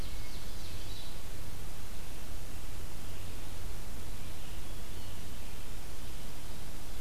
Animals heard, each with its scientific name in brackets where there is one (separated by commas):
Ovenbird (Seiurus aurocapilla), Red-eyed Vireo (Vireo olivaceus)